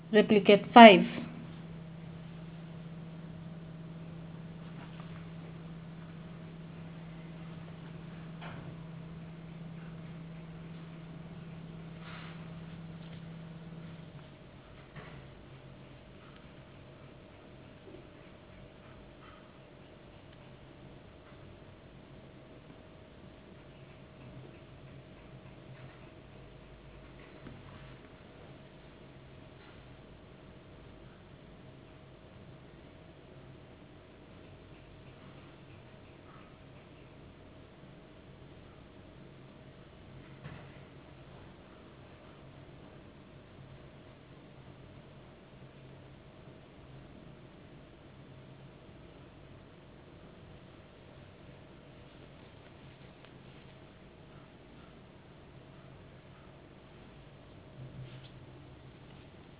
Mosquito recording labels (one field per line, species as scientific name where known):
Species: no mosquito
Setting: insect culture